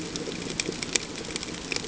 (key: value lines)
label: ambient
recorder: HydroMoth